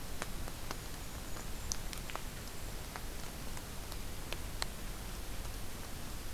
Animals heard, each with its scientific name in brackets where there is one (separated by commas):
Golden-crowned Kinglet (Regulus satrapa)